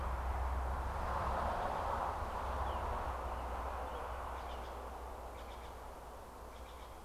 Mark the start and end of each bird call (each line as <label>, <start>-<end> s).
Steller's Jay (Cyanocitta stelleri), 4.2-7.0 s